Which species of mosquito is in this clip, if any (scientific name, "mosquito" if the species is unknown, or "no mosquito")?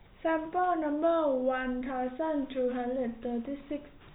no mosquito